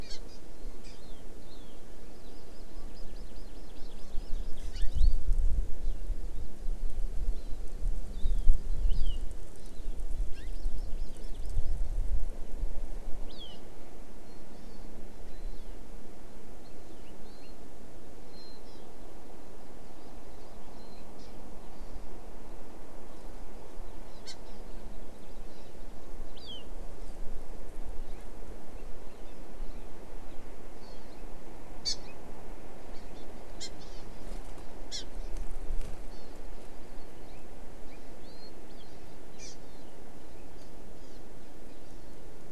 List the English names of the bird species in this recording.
Hawaii Amakihi, Warbling White-eye, House Finch